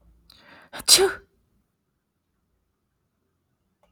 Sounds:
Sneeze